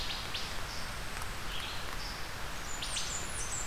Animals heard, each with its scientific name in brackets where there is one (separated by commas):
Wood Thrush (Hylocichla mustelina), Red-eyed Vireo (Vireo olivaceus), Blackburnian Warbler (Setophaga fusca)